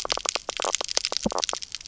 {"label": "biophony, knock croak", "recorder": "SoundTrap 300"}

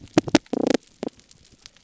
{"label": "biophony, damselfish", "recorder": "SoundTrap 300"}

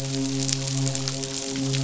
{"label": "biophony, midshipman", "recorder": "SoundTrap 500"}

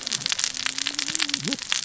{"label": "biophony, cascading saw", "recorder": "SoundTrap 600 or HydroMoth"}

